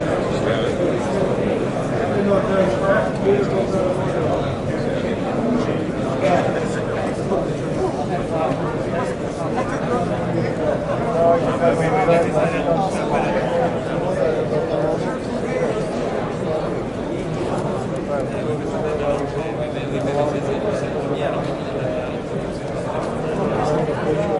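People are talking amid muffled background noise. 0.0 - 24.4

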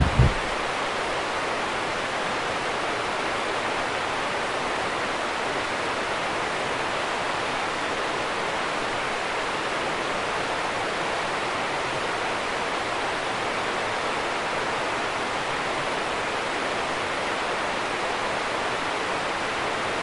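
A river flows. 0.0 - 20.0

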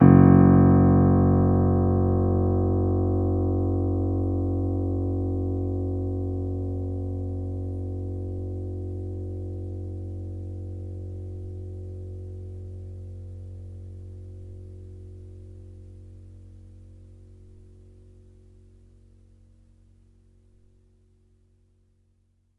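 A deep piano note is sustained. 0.0 - 13.8
A piano plays a deep note. 0.0 - 13.8

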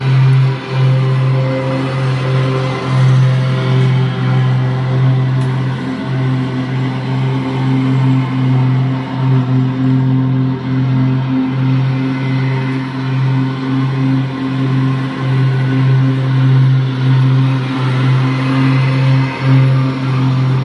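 A lawnmower steadily cutting grass in a quiet area. 0.0 - 20.6

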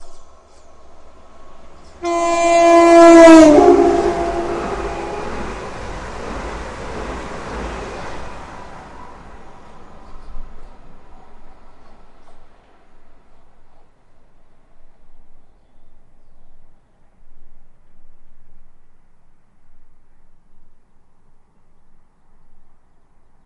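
A train horn sounds short, loud, and high-pitched. 2.0 - 4.3
A train engine sounds loudly and then gradually fades away. 4.3 - 9.6

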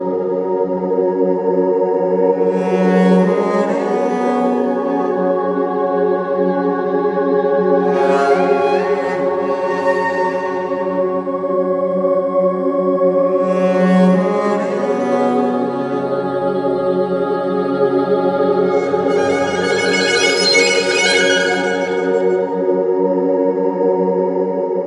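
An emotional, quiet musical soundtrack. 0.0 - 24.9
A violin is playing. 2.5 - 6.2
A violin is playing. 7.8 - 11.2
A violin is playing. 13.5 - 16.6
A violin is playing. 19.2 - 22.5

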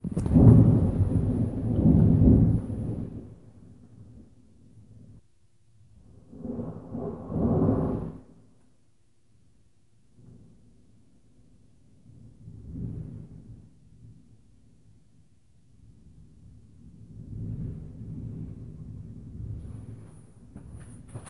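Distant thunder rumbles repeatedly. 0.0 - 3.4
Distant thunder rumbles repeatedly. 6.4 - 8.3
Distant thunder rumbles repeatedly with heavy muffling. 12.1 - 21.3

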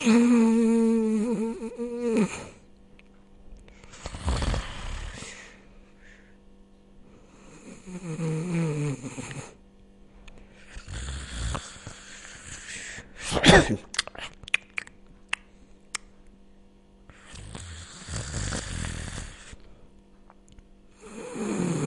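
Snoring or nose blowing is heard indoors. 0.0 - 2.6
An unusual snoring sound is heard indoors. 3.8 - 5.5
Snoring is heard indoors. 7.5 - 9.7
Snoring is heard indoors. 10.3 - 13.2
A single sneeze is heard. 13.1 - 13.9
A soft smacking sound is heard indoors. 13.9 - 16.1
Someone snores with a congested nose indoors. 17.3 - 19.6
A loud gulp is heard. 20.2 - 20.9
Someone snores indoors. 21.1 - 21.9

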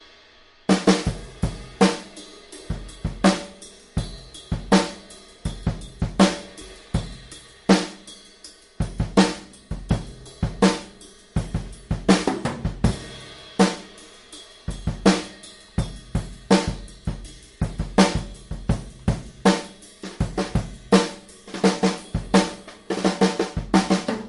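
Cymbals produce short, metallic bursts. 0.0 - 24.3
A drum kit produces a crisp, rhythmic beat. 0.6 - 24.3

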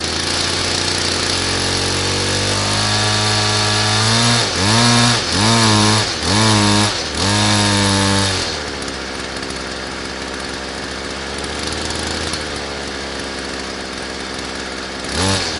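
A chainsaw makes a loud noise. 0.0 - 15.6

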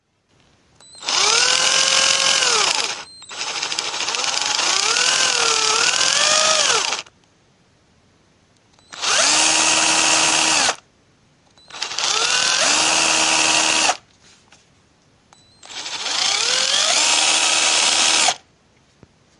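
A battery drill is turned on. 1.0 - 7.1
Battery drill turning on nearby. 8.9 - 10.7
A battery drill is turned on. 11.7 - 14.0
A battery drill is turned on. 15.6 - 18.4

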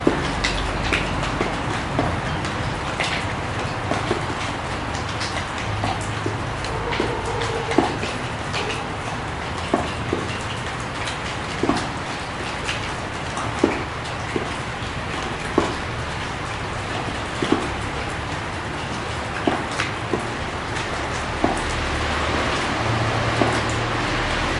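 Rain falling with footsteps. 0.1 - 21.2
A vehicle passes by while it is raining. 21.3 - 24.5

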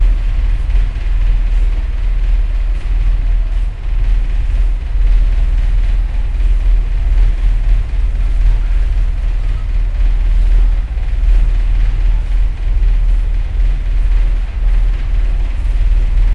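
Rhythmic deep rumbling. 0.1 - 16.2

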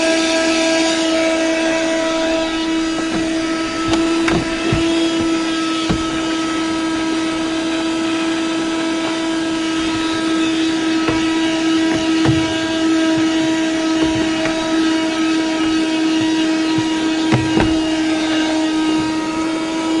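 A vacuum cleaner runs steadily while someone cleans a car interior. 0.0 - 20.0

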